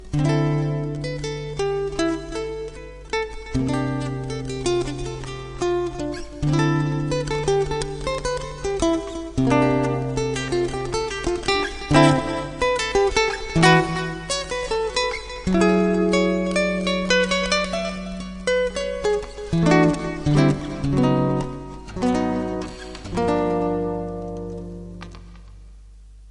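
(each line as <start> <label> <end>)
0.0 Guitar chords playing in the intro. 26.3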